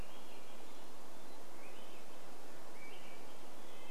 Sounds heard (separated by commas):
Red-breasted Nuthatch song, Swainson's Thrush song